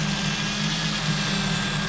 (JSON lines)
{"label": "anthrophony, boat engine", "recorder": "SoundTrap 500"}